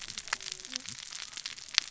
{"label": "biophony, cascading saw", "recorder": "SoundTrap 600 or HydroMoth"}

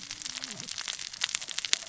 {"label": "biophony, cascading saw", "recorder": "SoundTrap 600 or HydroMoth"}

